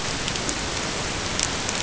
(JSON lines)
{"label": "ambient", "recorder": "HydroMoth"}